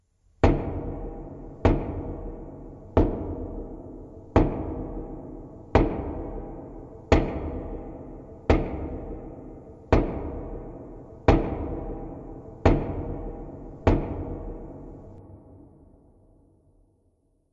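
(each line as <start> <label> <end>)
0.3 Slowed-down metallic sound of a hammer hitting wood repeatedly in rhythm. 15.1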